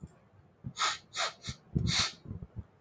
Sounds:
Sniff